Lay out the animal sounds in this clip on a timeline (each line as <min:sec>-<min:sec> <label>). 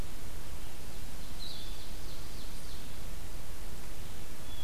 0:00.7-0:03.0 Ovenbird (Seiurus aurocapilla)
0:01.3-0:04.6 Blue-headed Vireo (Vireo solitarius)